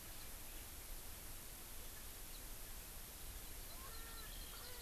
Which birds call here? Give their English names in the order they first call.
Erckel's Francolin, Eurasian Skylark